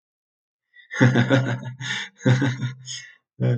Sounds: Laughter